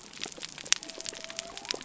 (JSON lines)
{"label": "biophony", "recorder": "SoundTrap 300"}